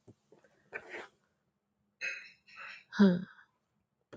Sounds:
Sigh